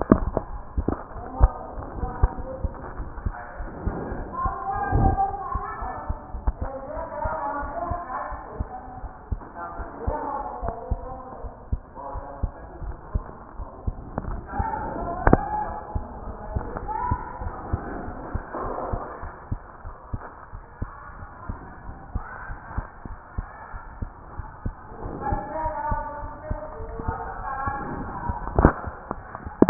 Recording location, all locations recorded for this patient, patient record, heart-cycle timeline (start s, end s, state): aortic valve (AV)
aortic valve (AV)+pulmonary valve (PV)+tricuspid valve (TV)+mitral valve (MV)
#Age: Child
#Sex: Female
#Height: 103.0 cm
#Weight: 14.0 kg
#Pregnancy status: False
#Murmur: Absent
#Murmur locations: nan
#Most audible location: nan
#Systolic murmur timing: nan
#Systolic murmur shape: nan
#Systolic murmur grading: nan
#Systolic murmur pitch: nan
#Systolic murmur quality: nan
#Diastolic murmur timing: nan
#Diastolic murmur shape: nan
#Diastolic murmur grading: nan
#Diastolic murmur pitch: nan
#Diastolic murmur quality: nan
#Outcome: Abnormal
#Campaign: 2014 screening campaign
0.00	21.86	unannotated
21.86	21.98	S1
21.98	22.14	systole
22.14	22.24	S2
22.24	22.50	diastole
22.50	22.58	S1
22.58	22.76	systole
22.76	22.86	S2
22.86	23.10	diastole
23.10	23.18	S1
23.18	23.36	systole
23.36	23.48	S2
23.48	23.74	diastole
23.74	23.82	S1
23.82	24.00	systole
24.00	24.10	S2
24.10	24.39	diastole
24.39	24.48	S1
24.48	24.64	systole
24.64	24.74	S2
24.74	25.04	diastole
25.04	29.70	unannotated